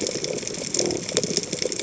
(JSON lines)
{"label": "biophony", "recorder": "HydroMoth"}